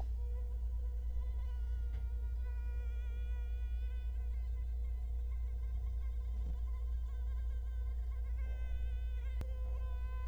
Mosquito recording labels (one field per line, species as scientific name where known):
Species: Culex quinquefasciatus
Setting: cup